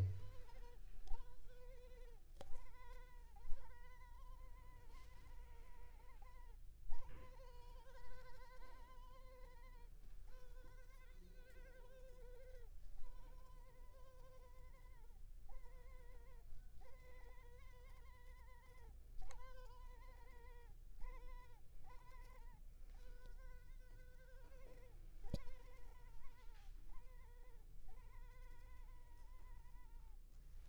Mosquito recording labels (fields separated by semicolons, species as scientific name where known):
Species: Culex pipiens complex; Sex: female; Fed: unfed; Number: one; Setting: cup